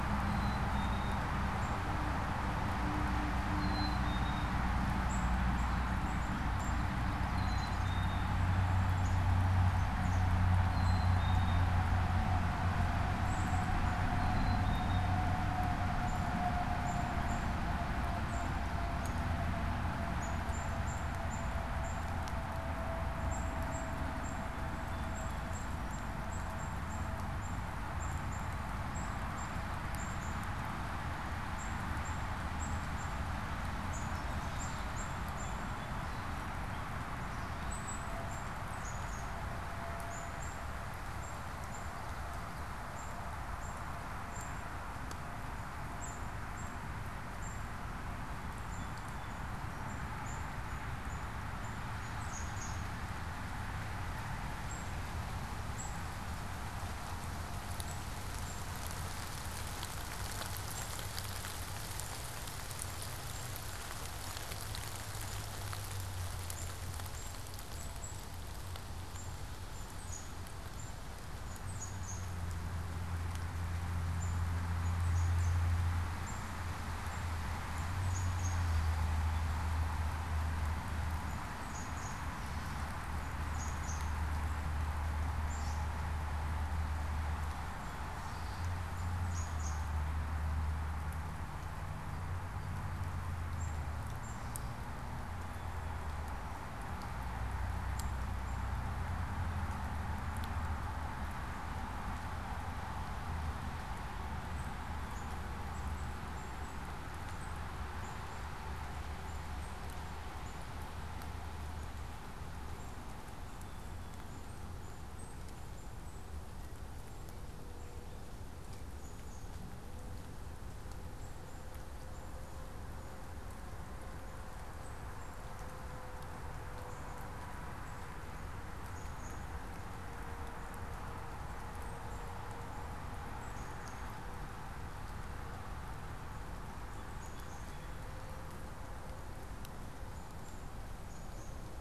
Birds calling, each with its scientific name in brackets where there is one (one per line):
Black-capped Chickadee (Poecile atricapillus)
Gray Catbird (Dumetella carolinensis)